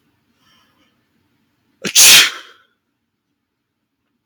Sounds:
Sneeze